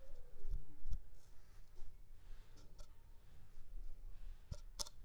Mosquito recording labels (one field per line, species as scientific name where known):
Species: Anopheles squamosus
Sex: female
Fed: unfed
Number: one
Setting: cup